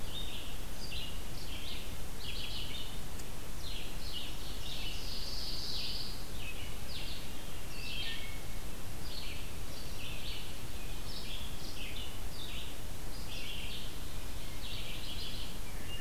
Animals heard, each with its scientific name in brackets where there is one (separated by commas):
Pine Warbler (Setophaga pinus), Red-eyed Vireo (Vireo olivaceus), Wood Thrush (Hylocichla mustelina), Ovenbird (Seiurus aurocapilla)